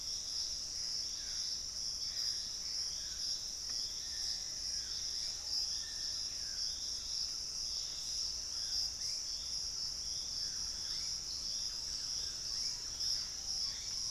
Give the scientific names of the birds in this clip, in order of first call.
Thamnomanes ardesiacus, Turdus hauxwelli, Cercomacra cinerascens, Formicarius analis, Lipaugus vociferans, Campylorhynchus turdinus